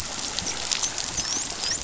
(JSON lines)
{"label": "biophony, dolphin", "recorder": "SoundTrap 500"}